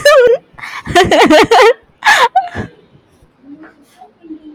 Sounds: Laughter